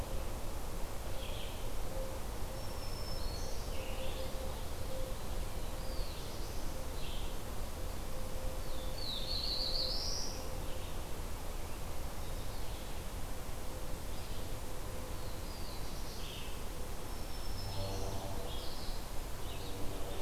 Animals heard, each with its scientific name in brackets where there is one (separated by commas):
Black-throated Green Warbler (Setophaga virens), Red-eyed Vireo (Vireo olivaceus), Black-throated Blue Warbler (Setophaga caerulescens)